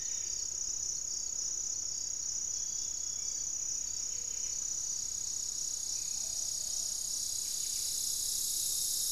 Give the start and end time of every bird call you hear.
0.0s-9.1s: Buff-breasted Wren (Cantorchilus leucotis)
3.0s-5.2s: unidentified bird
4.1s-4.7s: Gray-fronted Dove (Leptotila rufaxilla)
5.7s-6.2s: Black-faced Antthrush (Formicarius analis)
6.0s-7.2s: Plumbeous Pigeon (Patagioenas plumbea)

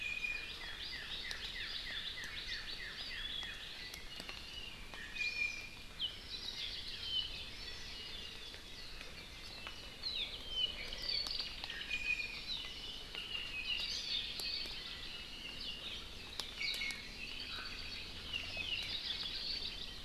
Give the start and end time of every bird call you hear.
0.0s-0.6s: Iiwi (Drepanis coccinea)
0.6s-3.7s: Northern Cardinal (Cardinalis cardinalis)
4.1s-4.5s: Iiwi (Drepanis coccinea)
4.9s-5.9s: Iiwi (Drepanis coccinea)
5.1s-5.6s: Hawaii Amakihi (Chlorodrepanis virens)
6.1s-7.5s: Hawaii Creeper (Loxops mana)
9.4s-11.7s: Apapane (Himatione sanguinea)
11.7s-12.5s: Iiwi (Drepanis coccinea)
13.6s-15.0s: Hawaii Creeper (Loxops mana)
16.5s-17.1s: Iiwi (Drepanis coccinea)
17.2s-18.2s: Apapane (Himatione sanguinea)
18.7s-20.0s: Hawaii Creeper (Loxops mana)

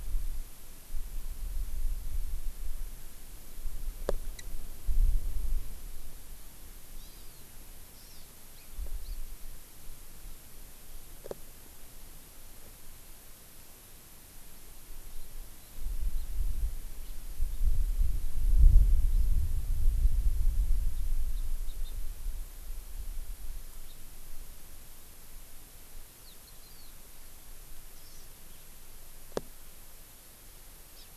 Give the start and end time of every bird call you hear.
7.0s-7.4s: Hawaii Amakihi (Chlorodrepanis virens)
7.9s-8.8s: Hawaii Amakihi (Chlorodrepanis virens)
9.1s-9.2s: Hawaii Amakihi (Chlorodrepanis virens)
17.0s-17.1s: House Finch (Haemorhous mexicanus)
21.7s-22.0s: Hawaii Amakihi (Chlorodrepanis virens)
26.7s-27.0s: Hawaii Amakihi (Chlorodrepanis virens)
28.0s-28.3s: Hawaii Amakihi (Chlorodrepanis virens)
31.0s-31.1s: Hawaii Amakihi (Chlorodrepanis virens)

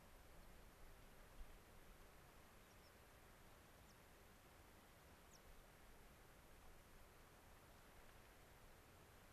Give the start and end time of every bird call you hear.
2.4s-3.2s: White-crowned Sparrow (Zonotrichia leucophrys)
3.6s-4.2s: White-crowned Sparrow (Zonotrichia leucophrys)
5.2s-5.6s: White-crowned Sparrow (Zonotrichia leucophrys)

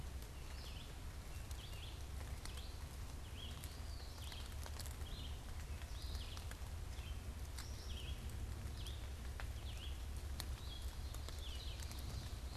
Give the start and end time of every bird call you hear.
0.0s-12.6s: Red-eyed Vireo (Vireo olivaceus)
3.6s-4.2s: Eastern Wood-Pewee (Contopus virens)
10.7s-12.5s: Ovenbird (Seiurus aurocapilla)

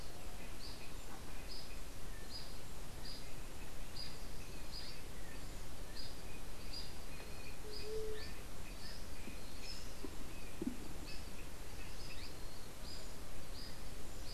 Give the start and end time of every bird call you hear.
0.0s-14.3s: unidentified bird
7.6s-8.4s: White-tipped Dove (Leptotila verreauxi)

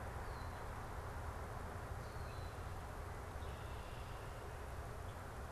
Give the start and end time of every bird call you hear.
2.1s-2.7s: Common Grackle (Quiscalus quiscula)
3.3s-4.5s: Red-winged Blackbird (Agelaius phoeniceus)

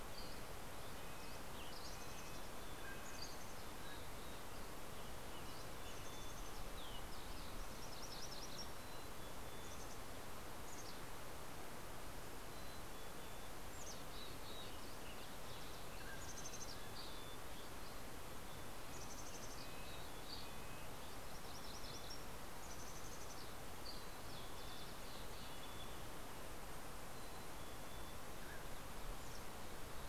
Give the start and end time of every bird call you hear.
0.0s-2.0s: Dusky Flycatcher (Empidonax oberholseri)
0.1s-3.5s: Red-breasted Nuthatch (Sitta canadensis)
2.1s-4.7s: Mountain Chickadee (Poecile gambeli)
3.7s-4.2s: Mountain Quail (Oreortyx pictus)
4.8s-5.9s: Western Tanager (Piranga ludoviciana)
5.3s-6.4s: Mountain Chickadee (Poecile gambeli)
6.0s-7.6s: Green-tailed Towhee (Pipilo chlorurus)
7.6s-8.8s: MacGillivray's Warbler (Geothlypis tolmiei)
8.7s-11.5s: Mountain Chickadee (Poecile gambeli)
12.5s-14.9s: Mountain Chickadee (Poecile gambeli)
15.8s-17.0s: Mountain Quail (Oreortyx pictus)
16.2s-22.2s: Mountain Chickadee (Poecile gambeli)
18.7s-21.2s: Red-breasted Nuthatch (Sitta canadensis)
21.1s-22.5s: MacGillivray's Warbler (Geothlypis tolmiei)
22.5s-23.8s: Mountain Chickadee (Poecile gambeli)
23.8s-24.2s: Dusky Flycatcher (Empidonax oberholseri)
24.7s-26.1s: Mountain Chickadee (Poecile gambeli)
26.8s-28.3s: Mountain Chickadee (Poecile gambeli)
28.1s-28.9s: Mountain Quail (Oreortyx pictus)
28.8s-29.6s: Mountain Chickadee (Poecile gambeli)

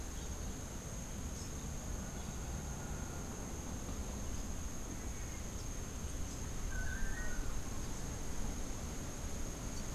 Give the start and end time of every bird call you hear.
1.2s-1.7s: Rufous-capped Warbler (Basileuterus rufifrons)
4.0s-9.9s: Rufous-capped Warbler (Basileuterus rufifrons)
6.6s-7.7s: Long-tailed Manakin (Chiroxiphia linearis)

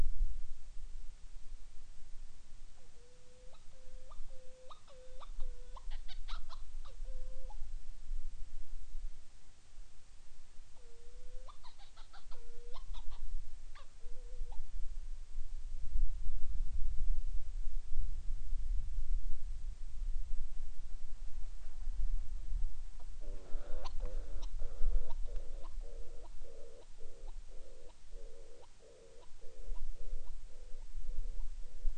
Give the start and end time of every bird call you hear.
2.6s-7.7s: Hawaiian Petrel (Pterodroma sandwichensis)
10.5s-14.7s: Hawaiian Petrel (Pterodroma sandwichensis)
22.9s-32.0s: Hawaiian Petrel (Pterodroma sandwichensis)

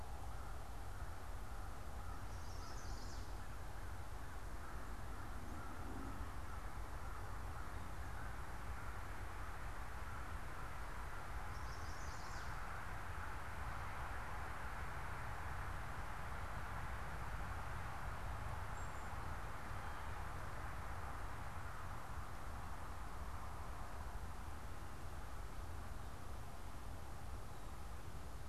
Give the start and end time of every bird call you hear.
0.0s-12.1s: American Crow (Corvus brachyrhynchos)
1.9s-3.4s: Chestnut-sided Warbler (Setophaga pensylvanica)
11.3s-12.6s: Chestnut-sided Warbler (Setophaga pensylvanica)

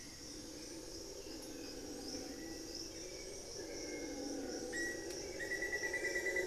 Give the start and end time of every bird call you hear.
0.0s-3.5s: Long-winged Antwren (Myrmotherula longipennis)
0.0s-6.5s: Hauxwell's Thrush (Turdus hauxwelli)
3.3s-4.9s: unidentified bird
4.5s-6.5s: Black-faced Antthrush (Formicarius analis)

